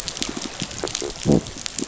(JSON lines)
{"label": "biophony", "recorder": "SoundTrap 500"}